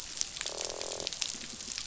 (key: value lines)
label: biophony, croak
recorder: SoundTrap 500

label: biophony
recorder: SoundTrap 500